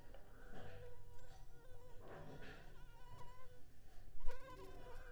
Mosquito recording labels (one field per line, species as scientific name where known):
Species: Anopheles arabiensis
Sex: female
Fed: unfed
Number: one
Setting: cup